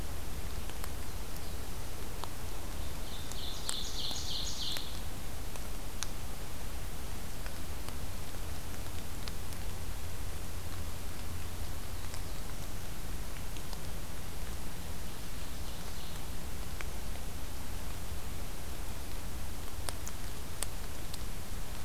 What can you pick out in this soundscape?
Black-throated Blue Warbler, Ovenbird